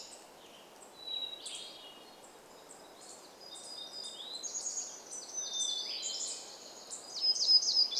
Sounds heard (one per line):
warbler song
Hermit Thrush song
unidentified bird chip note
Western Tanager song